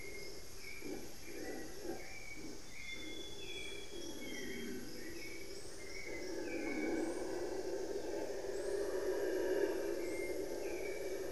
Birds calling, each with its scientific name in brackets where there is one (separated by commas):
Hauxwell's Thrush (Turdus hauxwelli), Amazonian Grosbeak (Cyanoloxia rothschildii)